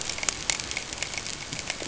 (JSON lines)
{"label": "ambient", "recorder": "HydroMoth"}